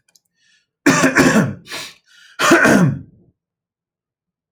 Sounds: Throat clearing